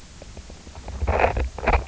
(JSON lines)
{"label": "biophony, knock croak", "recorder": "SoundTrap 300"}